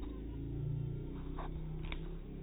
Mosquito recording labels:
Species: mosquito; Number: one; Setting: cup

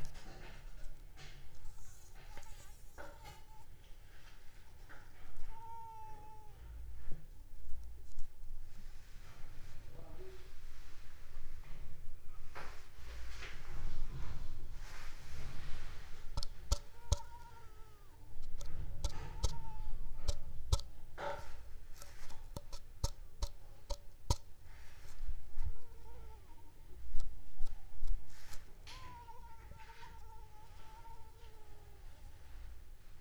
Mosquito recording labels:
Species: Anopheles arabiensis; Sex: female; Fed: unfed; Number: one; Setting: cup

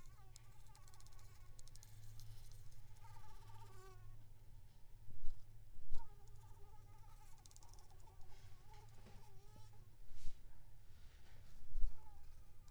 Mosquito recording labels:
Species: Anopheles squamosus; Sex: female; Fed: unfed; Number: one; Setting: cup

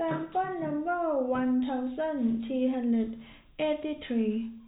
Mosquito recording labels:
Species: no mosquito; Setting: cup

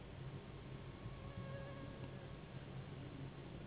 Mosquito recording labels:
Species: Anopheles gambiae s.s.; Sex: female; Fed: unfed; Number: one; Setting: insect culture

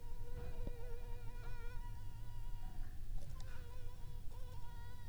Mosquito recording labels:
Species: Anopheles arabiensis; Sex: female; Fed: unfed; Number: one; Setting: cup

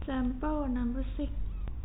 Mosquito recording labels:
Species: no mosquito; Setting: cup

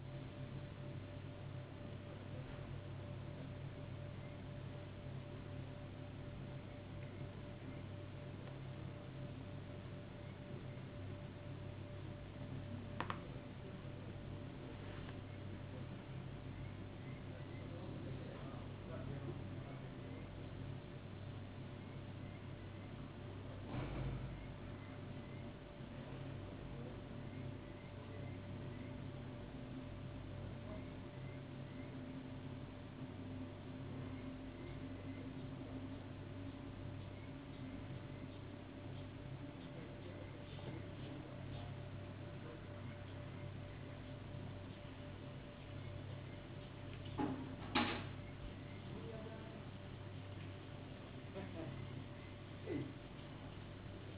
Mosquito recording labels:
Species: no mosquito; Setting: insect culture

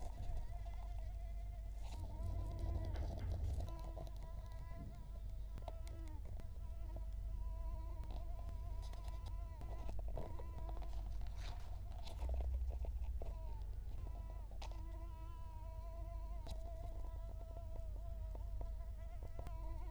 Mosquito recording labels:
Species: Culex quinquefasciatus; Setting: cup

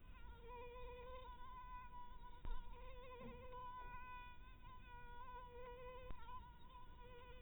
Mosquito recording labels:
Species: mosquito; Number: one; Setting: cup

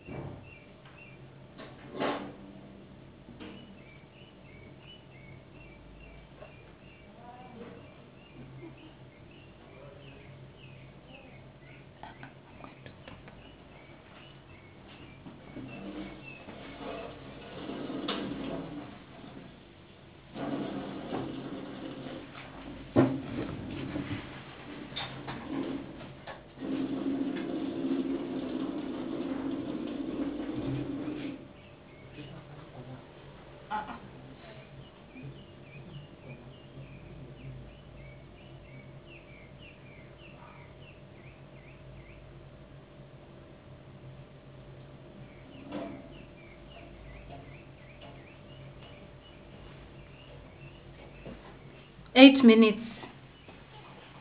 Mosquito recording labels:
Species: no mosquito; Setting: insect culture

